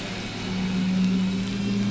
{"label": "anthrophony, boat engine", "recorder": "SoundTrap 500"}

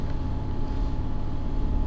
{"label": "anthrophony, boat engine", "recorder": "SoundTrap 300"}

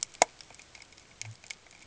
{"label": "ambient", "recorder": "HydroMoth"}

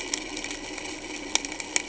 {"label": "anthrophony, boat engine", "recorder": "HydroMoth"}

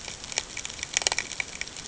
{"label": "ambient", "recorder": "HydroMoth"}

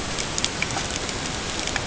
{"label": "ambient", "recorder": "HydroMoth"}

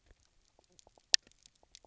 {"label": "biophony, knock croak", "recorder": "SoundTrap 300"}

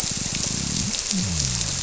{"label": "biophony", "recorder": "SoundTrap 300"}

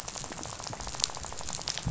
{"label": "biophony, rattle", "recorder": "SoundTrap 500"}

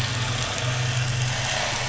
{"label": "anthrophony, boat engine", "recorder": "SoundTrap 500"}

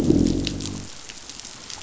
{"label": "biophony, growl", "recorder": "SoundTrap 500"}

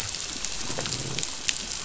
{"label": "biophony, growl", "recorder": "SoundTrap 500"}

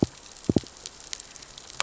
{"label": "biophony, knock", "recorder": "SoundTrap 600 or HydroMoth"}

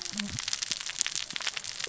{"label": "biophony, cascading saw", "recorder": "SoundTrap 600 or HydroMoth"}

